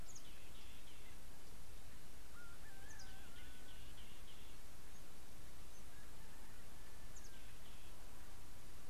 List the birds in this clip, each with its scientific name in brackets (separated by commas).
Somali Tit (Melaniparus thruppi)